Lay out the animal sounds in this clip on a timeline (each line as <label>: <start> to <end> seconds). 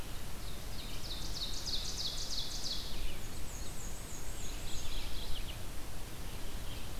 Ovenbird (Seiurus aurocapilla): 0.0 to 3.0 seconds
Red-eyed Vireo (Vireo olivaceus): 0.0 to 7.0 seconds
Black-and-white Warbler (Mniotilta varia): 3.1 to 4.9 seconds
Mourning Warbler (Geothlypis philadelphia): 4.4 to 5.5 seconds